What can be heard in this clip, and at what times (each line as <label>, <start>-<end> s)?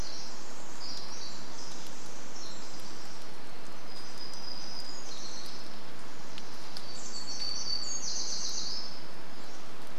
Pacific Wren song, 0-4 s
warbler song, 4-10 s
unidentified sound, 6-10 s